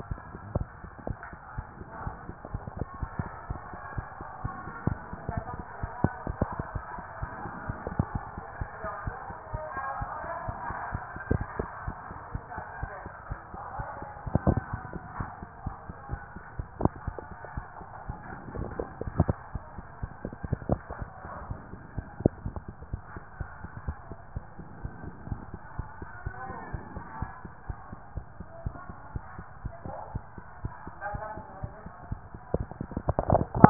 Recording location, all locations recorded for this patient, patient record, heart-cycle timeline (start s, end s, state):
mitral valve (MV)
aortic valve (AV)+pulmonary valve (PV)+tricuspid valve (TV)+mitral valve (MV)
#Age: Child
#Sex: Male
#Height: 163.0 cm
#Weight: 84.5 kg
#Pregnancy status: False
#Murmur: Absent
#Murmur locations: nan
#Most audible location: nan
#Systolic murmur timing: nan
#Systolic murmur shape: nan
#Systolic murmur grading: nan
#Systolic murmur pitch: nan
#Systolic murmur quality: nan
#Diastolic murmur timing: nan
#Diastolic murmur shape: nan
#Diastolic murmur grading: nan
#Diastolic murmur pitch: nan
#Diastolic murmur quality: nan
#Outcome: Abnormal
#Campaign: 2015 screening campaign
0.00	7.18	unannotated
7.18	7.30	S1
7.30	7.42	systole
7.42	7.52	S2
7.52	7.66	diastole
7.66	7.76	S1
7.76	7.88	systole
7.88	7.98	S2
7.98	8.12	diastole
8.12	8.22	S1
8.22	8.34	systole
8.34	8.44	S2
8.44	8.58	diastole
8.58	8.70	S1
8.70	8.82	systole
8.82	8.90	S2
8.90	9.04	diastole
9.04	9.16	S1
9.16	9.27	systole
9.27	9.36	S2
9.36	9.52	diastole
9.52	9.62	S1
9.62	9.74	systole
9.74	9.82	S2
9.82	10.00	diastole
10.00	10.10	S1
10.10	10.21	systole
10.21	10.30	S2
10.30	10.46	diastole
10.46	10.58	S1
10.58	10.68	systole
10.68	10.78	S2
10.78	10.92	diastole
10.92	11.02	S1
11.02	11.14	systole
11.14	11.19	S2
11.19	11.38	diastole
11.38	11.46	S1
11.46	11.61	systole
11.61	11.68	S2
11.68	11.84	diastole
11.84	11.96	S1
11.96	12.08	systole
12.08	12.16	S2
12.16	12.32	diastole
12.32	12.44	S1
12.44	12.55	systole
12.55	12.64	S2
12.64	12.78	diastole
12.78	12.92	S1
12.92	13.03	systole
13.03	13.12	S2
13.12	13.29	diastole
13.29	13.38	S1
13.38	13.52	systole
13.52	13.60	S2
13.60	13.76	diastole
13.76	13.88	S1
13.88	14.00	systole
14.00	14.08	S2
14.08	14.24	diastole
14.24	14.32	S1
14.32	33.70	unannotated